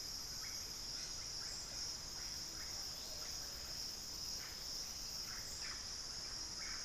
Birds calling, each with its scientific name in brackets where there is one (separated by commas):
unidentified bird, Russet-backed Oropendola (Psarocolius angustifrons)